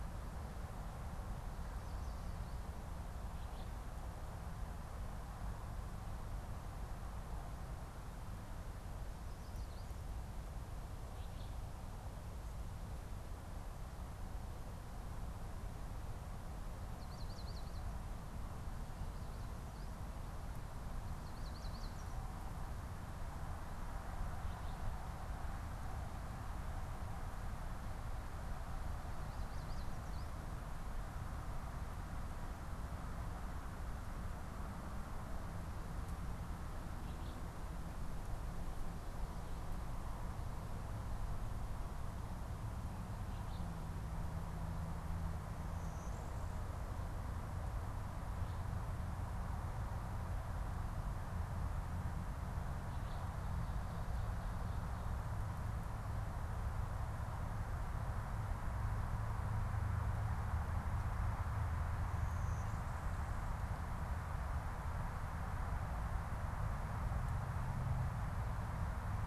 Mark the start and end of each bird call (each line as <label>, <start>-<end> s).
Alder Flycatcher (Empidonax alnorum), 11.0-11.8 s
Yellow Warbler (Setophaga petechia), 16.6-18.2 s
Yellow Warbler (Setophaga petechia), 21.2-22.4 s
Yellow Warbler (Setophaga petechia), 29.1-30.7 s
Alder Flycatcher (Empidonax alnorum), 37.0-37.7 s
Blue-winged Warbler (Vermivora cyanoptera), 45.5-47.1 s
Blue-winged Warbler (Vermivora cyanoptera), 62.0-63.7 s